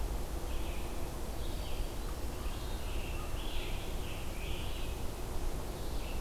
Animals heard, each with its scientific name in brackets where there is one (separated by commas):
Red-eyed Vireo (Vireo olivaceus), Black-throated Green Warbler (Setophaga virens), Scarlet Tanager (Piranga olivacea)